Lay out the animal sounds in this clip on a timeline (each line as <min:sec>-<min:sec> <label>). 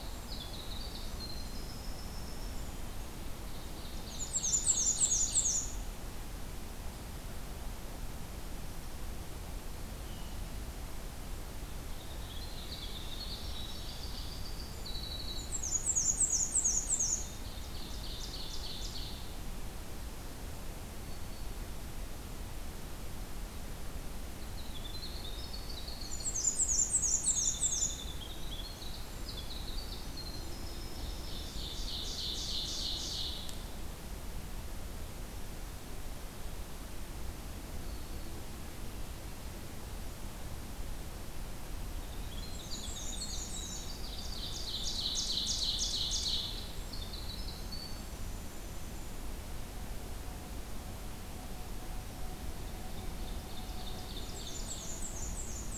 0:00.0-0:03.0 Winter Wren (Troglodytes hiemalis)
0:03.8-0:05.8 Ovenbird (Seiurus aurocapilla)
0:04.0-0:05.9 Black-and-white Warbler (Mniotilta varia)
0:11.7-0:16.1 Winter Wren (Troglodytes hiemalis)
0:15.2-0:17.4 Black-and-white Warbler (Mniotilta varia)
0:16.8-0:19.5 Ovenbird (Seiurus aurocapilla)
0:24.1-0:31.6 Winter Wren (Troglodytes hiemalis)
0:25.9-0:28.1 Black-and-white Warbler (Mniotilta varia)
0:30.8-0:33.7 Ovenbird (Seiurus aurocapilla)
0:37.7-0:38.5 Black-throated Green Warbler (Setophaga virens)
0:41.7-0:49.5 Winter Wren (Troglodytes hiemalis)
0:42.3-0:44.2 Black-and-white Warbler (Mniotilta varia)
0:44.0-0:46.7 Ovenbird (Seiurus aurocapilla)
0:52.9-0:54.9 Ovenbird (Seiurus aurocapilla)
0:54.2-0:55.8 Black-and-white Warbler (Mniotilta varia)